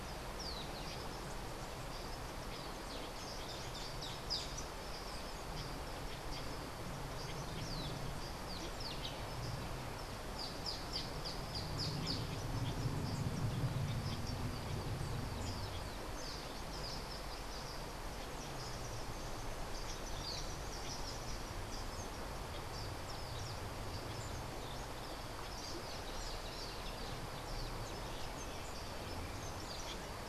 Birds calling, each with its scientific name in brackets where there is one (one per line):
Social Flycatcher (Myiozetetes similis)